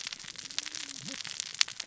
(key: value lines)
label: biophony, cascading saw
recorder: SoundTrap 600 or HydroMoth